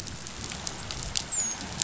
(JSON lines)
{"label": "biophony, dolphin", "recorder": "SoundTrap 500"}